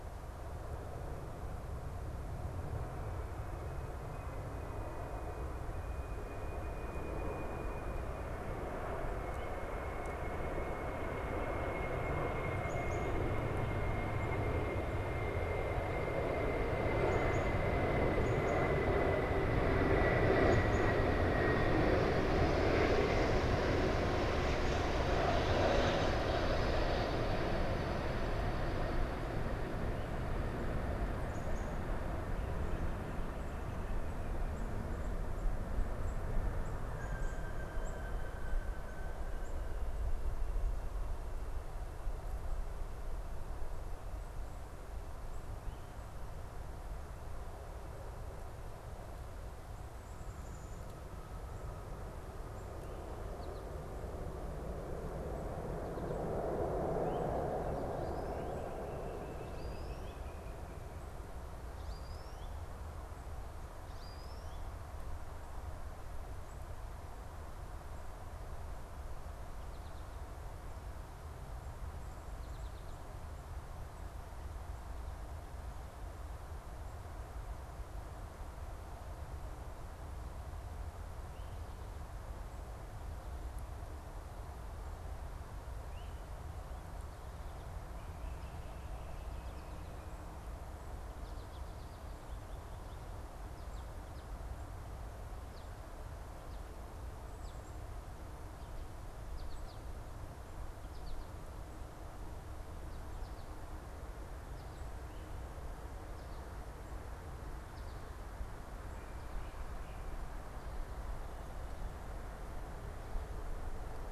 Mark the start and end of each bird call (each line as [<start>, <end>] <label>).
[12.42, 20.92] Black-capped Chickadee (Poecile atricapillus)
[31.12, 39.82] Black-capped Chickadee (Poecile atricapillus)
[57.82, 64.82] American Goldfinch (Spinus tristis)
[58.22, 60.82] unidentified bird
[91.22, 97.62] American Goldfinch (Spinus tristis)
[99.22, 101.42] American Goldfinch (Spinus tristis)